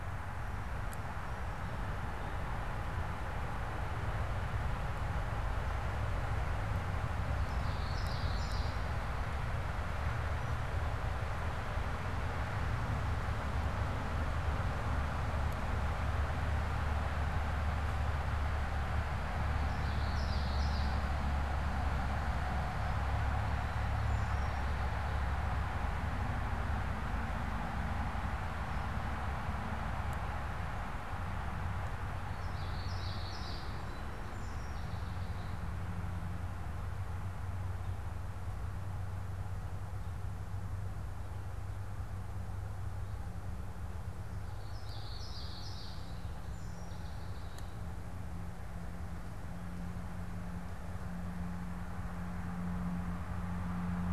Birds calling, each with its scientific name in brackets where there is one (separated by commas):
Song Sparrow (Melospiza melodia), Common Yellowthroat (Geothlypis trichas)